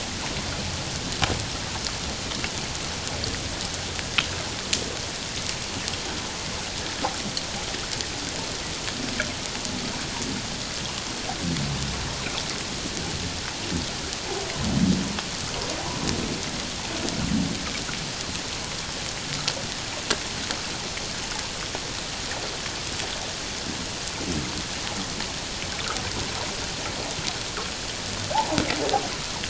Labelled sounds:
28.3	28.6	humpback whale, 0.78 to 1.0 kHz

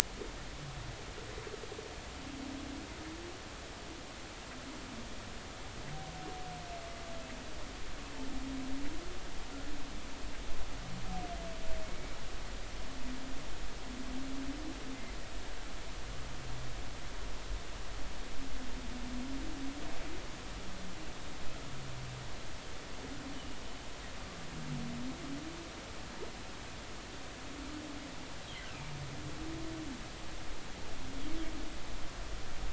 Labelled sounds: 11.8	12.2	humpback whale, 2.1 to 2.3 kHz
23.3	23.6	humpback whale, 2.8 to 3.1 kHz
28.6	28.9	humpback whale, 2.2 to 3.2 kHz

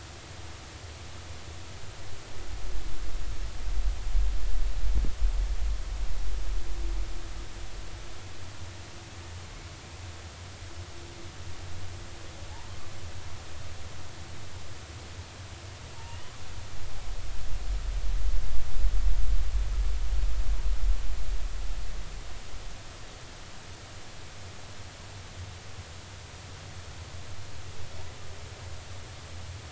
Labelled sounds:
16.0	16.3	humpback whale, 2.6 to 3.1 kHz

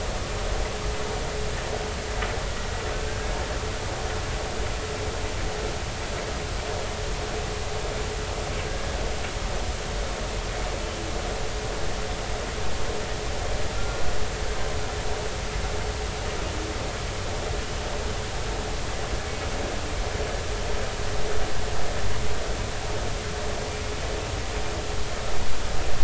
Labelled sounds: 13.7	14.0	humpback whale, 1.3 to 1.4 kHz

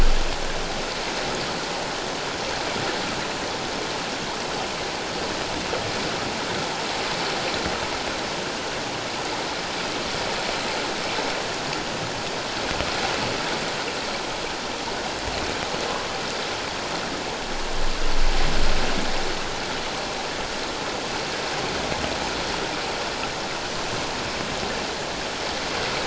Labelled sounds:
15.9	16.1	water noise, 1.0 to 1.2 kHz

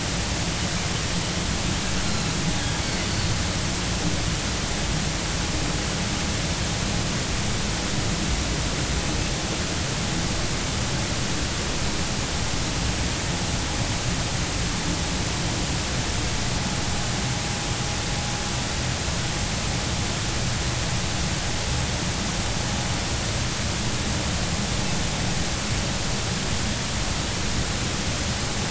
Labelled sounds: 2.0	3.1	Pacific white-sided dolphin, 2.0 to 4.4 kHz

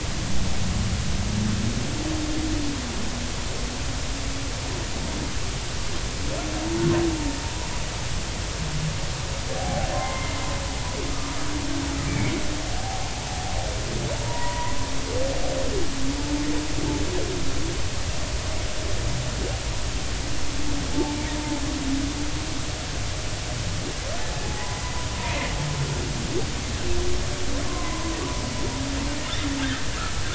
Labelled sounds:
9.6	10.4	humpback whale, 0.80 to 2.2 kHz
12.1	12.3	humpback whale, 2.0 to 2.4 kHz
14.2	14.8	humpback whale, 0.90 to 2.1 kHz
20.9	21.2	humpback whale, 0.80 to 0.93 kHz
24.4	25.5	humpback whale, 0.80 to 2.2 kHz
27.7	28.2	humpback whale, 0.96 to 1.1 kHz

